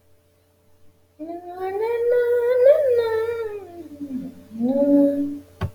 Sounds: Sigh